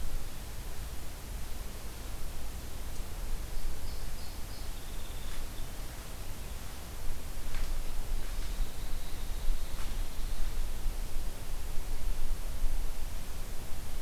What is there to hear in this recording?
Song Sparrow